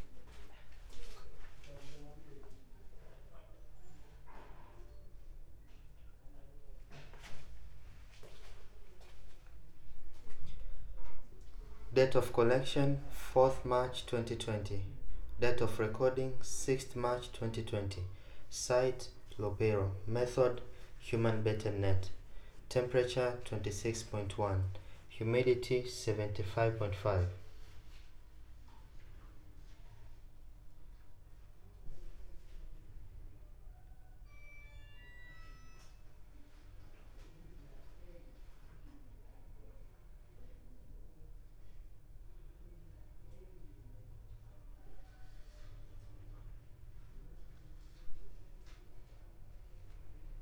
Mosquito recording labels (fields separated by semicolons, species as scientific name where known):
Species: no mosquito; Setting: cup